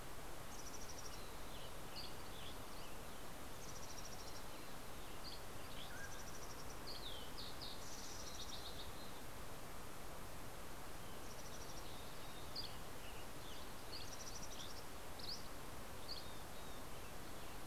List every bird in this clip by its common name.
Mountain Chickadee, Western Tanager, Dusky Flycatcher, Mountain Quail, Fox Sparrow